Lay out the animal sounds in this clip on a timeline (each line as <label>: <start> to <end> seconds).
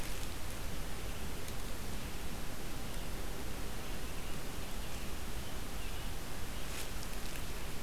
American Robin (Turdus migratorius): 0.0 to 7.8 seconds